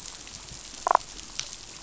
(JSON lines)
{"label": "biophony, damselfish", "recorder": "SoundTrap 500"}